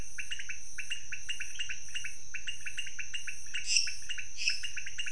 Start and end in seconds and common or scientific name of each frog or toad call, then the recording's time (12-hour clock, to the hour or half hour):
0.0	5.1	pointedbelly frog
3.6	4.7	lesser tree frog
~11pm